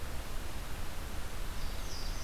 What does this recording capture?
Louisiana Waterthrush